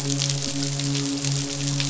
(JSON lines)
{"label": "biophony, midshipman", "recorder": "SoundTrap 500"}